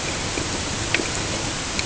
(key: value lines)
label: ambient
recorder: HydroMoth